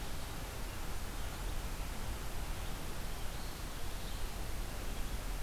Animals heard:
forest ambience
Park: Marsh-Billings-Rockefeller National Historical Park